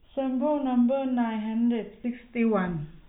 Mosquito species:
no mosquito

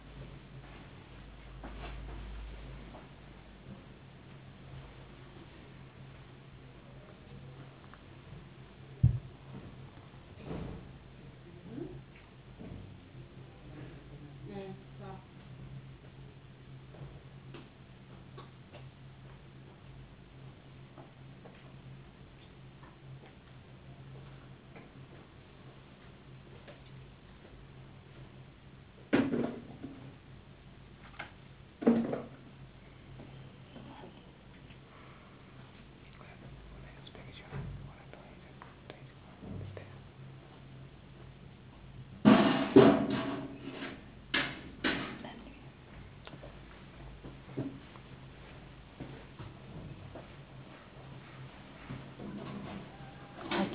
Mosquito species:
no mosquito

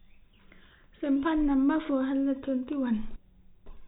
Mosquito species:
no mosquito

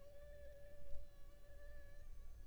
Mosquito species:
Anopheles funestus s.s.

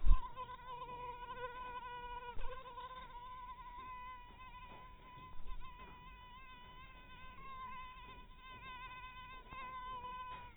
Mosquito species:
mosquito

